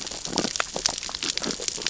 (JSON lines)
{"label": "biophony, sea urchins (Echinidae)", "recorder": "SoundTrap 600 or HydroMoth"}